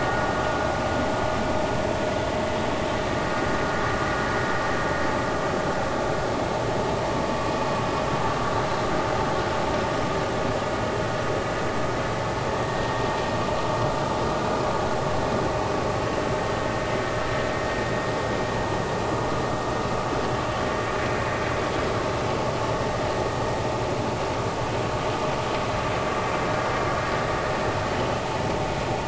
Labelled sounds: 12.6	12.9	vessel noise, 1.8 to 1.9 kHz

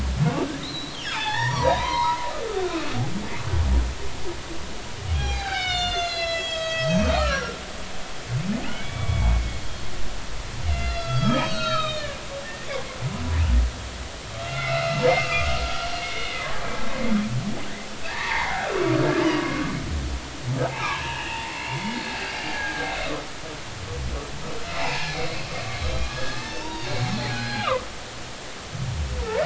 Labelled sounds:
0.2	2.2	humpback whale, 0.80 to 5.9 kHz
2.5	3.0	humpback whale, 1.2 to 2.6 kHz
5.1	7.6	humpback whale, 0.80 to 8.0 kHz
8.7	9.6	humpback whale, 1.0 to 3.5 kHz
10.7	12.7	humpback whale, 1.2 to 6.9 kHz
14.4	16.4	humpback whale, 1.1 to 4.2 kHz
18.1	19.7	humpback whale, 0.80 to 2.3 kHz
20.7	21.8	humpback whale, 0.80 to 3.0 kHz
22.5	22.9	humpback whale, 1.5 to 1.8 kHz
24.7	25.4	humpback whale, 0.80 to 5.2 kHz
26.0	27.9	humpback whale, 0.86 to 5.4 kHz

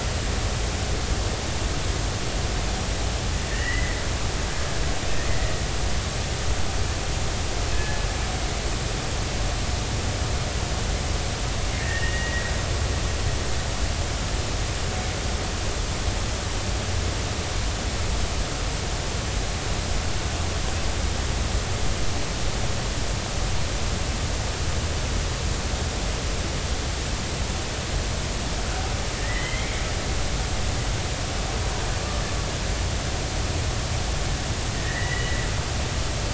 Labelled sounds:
3.5	4.0	killer whale, Bigg's (transient), 1.7 to 2.1 kHz
5.3	5.5	killer whale, Bigg's (transient), 1.9 to 2.1 kHz
7.7	8.0	killer whale, Bigg's (transient), 1.6 to 1.8 kHz
11.7	12.5	killer whale, Bigg's (transient), 1.7 to 2.9 kHz
29.2	29.7	killer whale, Bigg's (transient), 1.7 to 3.4 kHz
34.7	35.4	killer whale, Bigg's (transient), 1.7 to 2.0 kHz

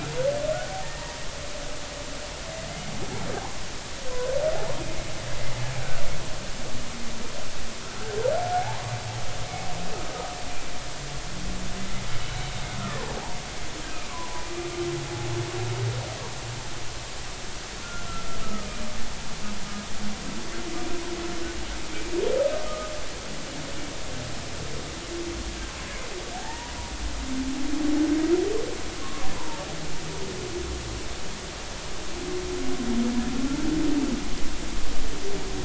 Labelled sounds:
3.7	4.8	humpback whale, 0.80 to 2.2 kHz
8.5	8.8	humpback whale, 0.80 to 0.96 kHz
14.1	14.5	humpback whale, 0.93 to 1.2 kHz
17.8	18.7	humpback whale, 1.2 to 1.5 kHz
22.7	22.9	humpback whale, 1.2 to 1.3 kHz
26.3	26.7	humpback whale, 0.80 to 1.0 kHz
29.0	29.7	humpback whale, 0.83 to 1.2 kHz

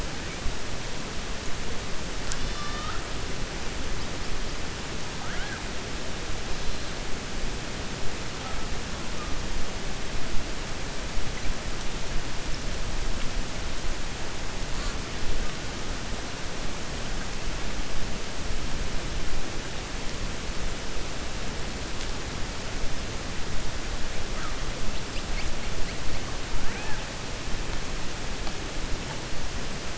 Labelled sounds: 2.3	3.0	killer whale, 1.2 to 5.9 kHz
5.1	5.6	killer whale, 0.73 to 3.3 kHz

